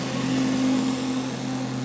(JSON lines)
{"label": "anthrophony, boat engine", "recorder": "SoundTrap 500"}